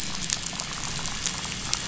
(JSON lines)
{"label": "biophony", "recorder": "SoundTrap 500"}
{"label": "anthrophony, boat engine", "recorder": "SoundTrap 500"}